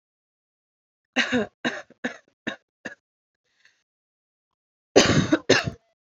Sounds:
Cough